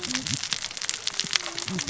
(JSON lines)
{"label": "biophony, cascading saw", "recorder": "SoundTrap 600 or HydroMoth"}